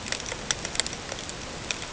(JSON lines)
{"label": "ambient", "recorder": "HydroMoth"}